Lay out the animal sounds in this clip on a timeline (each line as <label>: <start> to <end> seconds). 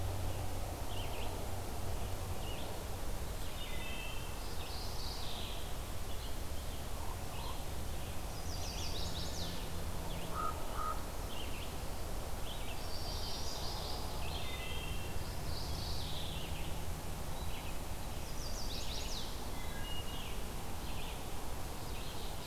Red-eyed Vireo (Vireo olivaceus): 0.0 to 22.5 seconds
Wood Thrush (Hylocichla mustelina): 3.0 to 4.5 seconds
Mourning Warbler (Geothlypis philadelphia): 4.5 to 6.1 seconds
Common Raven (Corvus corax): 6.8 to 7.5 seconds
Chestnut-sided Warbler (Setophaga pensylvanica): 8.0 to 9.6 seconds
Common Raven (Corvus corax): 10.1 to 11.3 seconds
Magnolia Warbler (Setophaga magnolia): 12.5 to 14.4 seconds
Wood Thrush (Hylocichla mustelina): 14.2 to 15.6 seconds
Mourning Warbler (Geothlypis philadelphia): 15.2 to 16.4 seconds
Chestnut-sided Warbler (Setophaga pensylvanica): 17.9 to 19.4 seconds
Wood Thrush (Hylocichla mustelina): 19.5 to 20.4 seconds
Ovenbird (Seiurus aurocapilla): 21.7 to 22.5 seconds